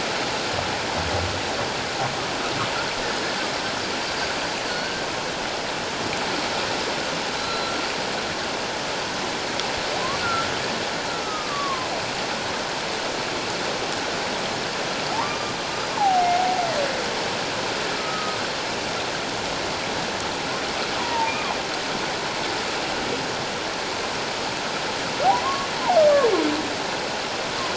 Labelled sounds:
4.7	5.1	humpback whale, 1.4 to 1.6 kHz
7.4	7.7	humpback whale, 4.0 to 4.2 kHz
10.2	10.5	humpback whale, 1.3 to 1.5 kHz
11.2	11.9	humpback whale, 0.97 to 1.3 kHz
15.1	15.5	humpback whale, 0.78 to 1.2 kHz
16.0	16.3	humpback whale, 0.78 to 0.97 kHz
18.0	18.4	humpback whale, 1.2 to 1.3 kHz
21.0	21.5	humpback whale, 0.84 to 2.5 kHz
25.2	25.7	humpback whale, 0.78 to 1.2 kHz

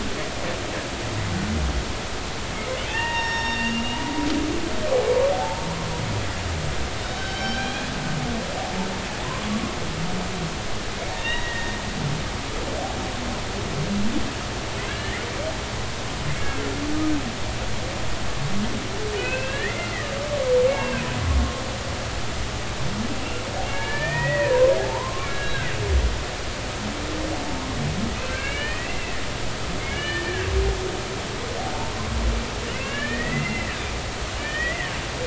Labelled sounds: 2.8	4.1	humpback whale, 0.80 to 5.6 kHz
5.3	5.6	humpback whale, 0.80 to 0.93 kHz
7.1	7.9	humpback whale, 1.4 to 4.7 kHz
9.2	9.8	humpback whale, 0.96 to 1.2 kHz
11.1	11.8	humpback whale, 1.8 to 3.9 kHz
14.9	15.2	humpback whale, 1.5 to 2.2 kHz
16.3	16.6	humpback whale, 2.1 to 2.3 kHz
19.1	19.9	humpback whale, 1.3 to 2.7 kHz
20.7	21.0	humpback whale, 1.5 to 2.8 kHz
23.7	25.7	humpback whale, 0.80 to 2.6 kHz
27.5	27.8	humpback whale, 0.86 to 1.1 kHz
28.2	29.2	humpback whale, 1.5 to 3.1 kHz
29.8	30.5	humpback whale, 1.5 to 3.0 kHz
32.7	33.7	humpback whale, 1.6 to 3.1 kHz
34.4	34.9	humpback whale, 1.7 to 3.2 kHz

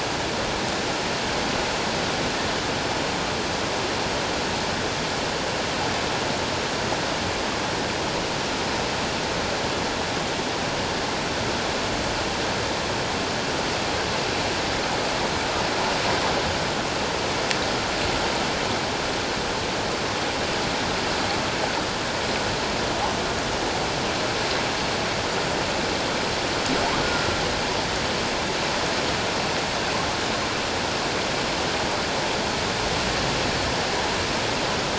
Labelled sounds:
27.0	27.3	humpback whale, 1.4 to 1.5 kHz

